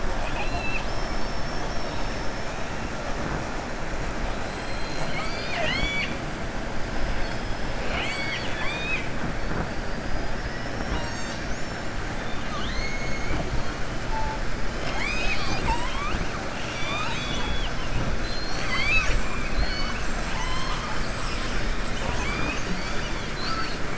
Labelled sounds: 4.5	6.2	killer whale, southern resident, 0.69 to 7.2 kHz
7.8	9.1	killer whale, southern resident, 0.67 to 7.9 kHz
16.5	17.8	killer whale, southern resident, 0.90 to 7.4 kHz

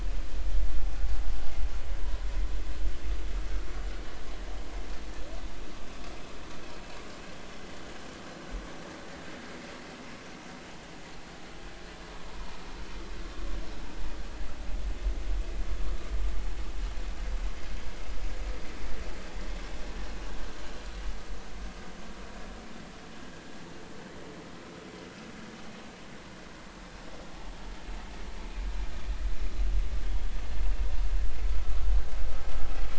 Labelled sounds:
7.0	7.3	vessel noise, 2.8 to 3.0 kHz

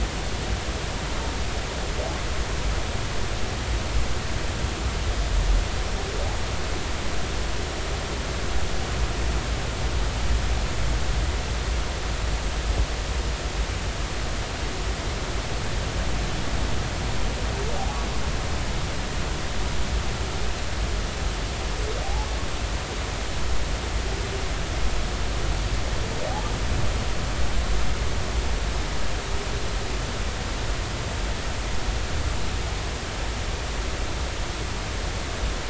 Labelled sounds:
22.0	22.3	humpback whale, 0.80 to 0.93 kHz

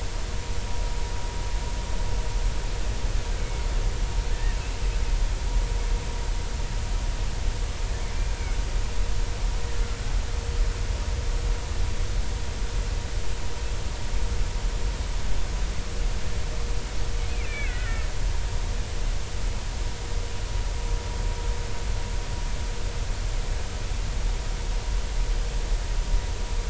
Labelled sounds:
3.4	4.6	killer whale, Bigg's (transient), 1.7 to 2.3 kHz
17.4	18.1	killer whale, Bigg's (transient), 1.2 to 2.8 kHz

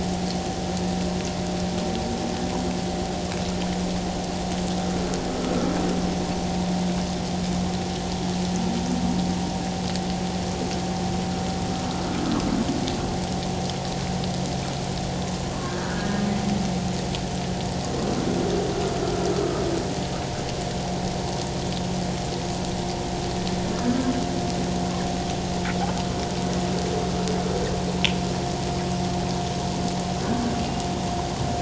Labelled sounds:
5.3	5.5	humpback whale, 1.2 to 1.4 kHz
15.6	16.2	humpback whale, 1.4 to 1.8 kHz
30.6	30.9	humpback whale, 2.8 to 2.9 kHz

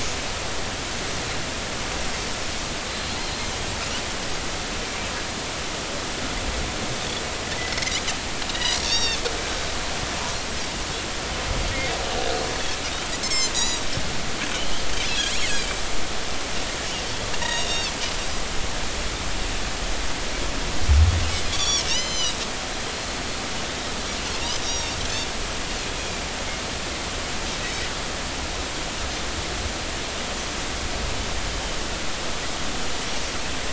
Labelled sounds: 2.9	3.5	Pacific white-sided dolphin, 4.0 to 4.3 kHz
7.6	7.9	Pacific white-sided dolphin, 2.0 to 2.2 kHz
8.5	9.2	Pacific white-sided dolphin, 2.5 to 5.8 kHz
13.2	13.8	Pacific white-sided dolphin, 2.0 to 8.0 kHz
15.5	15.8	Pacific white-sided dolphin, 2.2 to 2.7 kHz
17.4	17.9	Pacific white-sided dolphin, 3.3 to 6.7 kHz
21.5	22.4	Pacific white-sided dolphin, 2.7 to 7.3 kHz
22.9	23.2	Pacific white-sided dolphin, 4.1 to 4.4 kHz
24.6	25.0	Pacific white-sided dolphin, 3.6 to 5.8 kHz

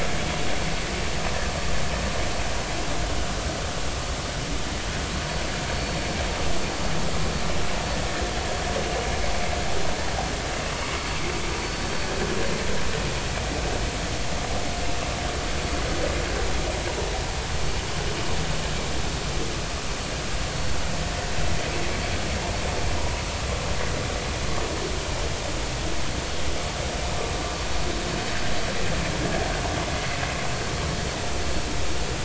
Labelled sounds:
5.7	6.0	vessel noise, 4.4 to 4.5 kHz
10.8	11.1	vessel noise, 0.93 to 1.2 kHz
11.5	11.8	vessel noise, 4.4 to 4.6 kHz

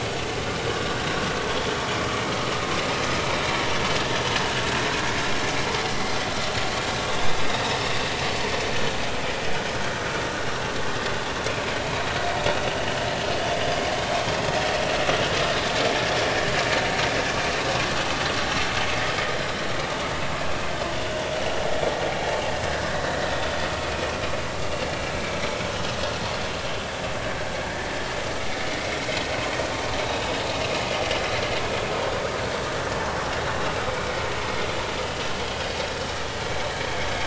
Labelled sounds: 7.1	7.4	vessel noise, 3.4 to 3.7 kHz
13.6	13.8	vessel noise, 4.8 to 5.0 kHz
26.1	26.4	vessel noise, 4.1 to 4.5 kHz
35.4	35.7	vessel noise, 3.2 to 3.3 kHz

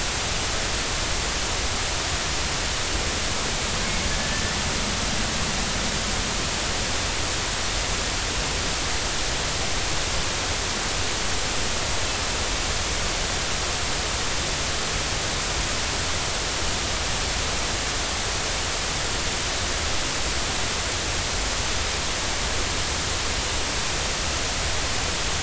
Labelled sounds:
4.2	4.5	killer whale, 1.7 to 1.8 kHz

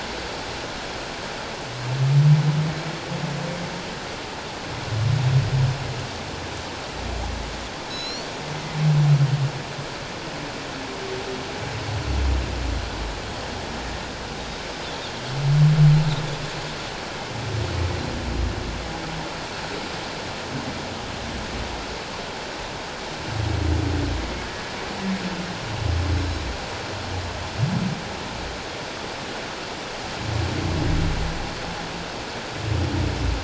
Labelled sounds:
7.9	8.3	Pacific white-sided dolphin, 3.8 to 7.2 kHz
26.1	26.4	Pacific white-sided dolphin, 3.8 to 4.0 kHz

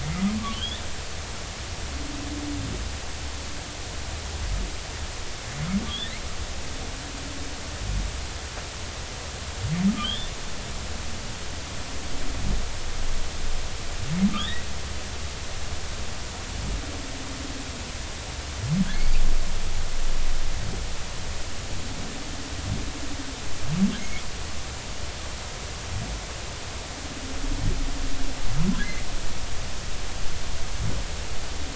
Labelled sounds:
0.5	0.8	humpback whale, 2.7 to 3.7 kHz
5.9	6.2	humpback whale, 3.1 to 3.8 kHz
10.0	10.3	humpback whale, 2.9 to 3.6 kHz
14.4	14.7	humpback whale, 1.5 to 3.9 kHz
24.0	24.2	humpback whale, 2.0 to 2.3 kHz

